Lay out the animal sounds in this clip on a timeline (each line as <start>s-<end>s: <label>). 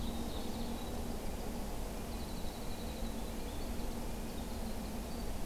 0.0s-1.0s: Ovenbird (Seiurus aurocapilla)
0.7s-5.4s: Winter Wren (Troglodytes hiemalis)